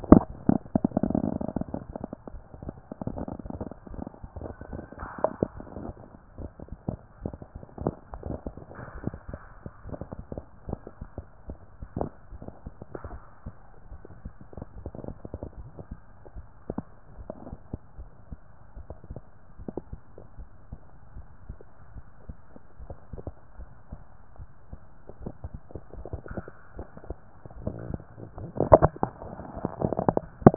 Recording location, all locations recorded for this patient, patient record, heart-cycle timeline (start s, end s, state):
tricuspid valve (TV)
pulmonary valve (PV)+tricuspid valve (TV)+mitral valve (MV)
#Age: nan
#Sex: Female
#Height: nan
#Weight: nan
#Pregnancy status: True
#Murmur: Absent
#Murmur locations: nan
#Most audible location: nan
#Systolic murmur timing: nan
#Systolic murmur shape: nan
#Systolic murmur grading: nan
#Systolic murmur pitch: nan
#Systolic murmur quality: nan
#Diastolic murmur timing: nan
#Diastolic murmur shape: nan
#Diastolic murmur grading: nan
#Diastolic murmur pitch: nan
#Diastolic murmur quality: nan
#Outcome: Abnormal
#Campaign: 2014 screening campaign
0.00	20.18	unannotated
20.18	20.38	diastole
20.38	20.48	S1
20.48	20.70	systole
20.70	20.80	S2
20.80	21.14	diastole
21.14	21.26	S1
21.26	21.48	systole
21.48	21.58	S2
21.58	21.94	diastole
21.94	22.04	S1
22.04	22.26	systole
22.26	22.36	S2
22.36	22.80	diastole
22.80	22.90	S1
22.90	23.14	systole
23.14	23.24	S2
23.24	23.58	diastole
23.58	23.69	S1
23.69	23.92	systole
23.92	24.00	S2
24.00	24.38	diastole
24.38	24.48	S1
24.48	24.70	systole
24.70	24.79	S2
24.79	25.21	diastole
25.21	30.56	unannotated